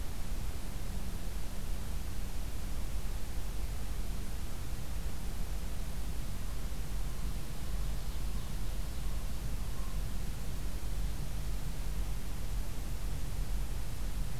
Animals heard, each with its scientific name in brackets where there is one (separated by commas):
Ovenbird (Seiurus aurocapilla)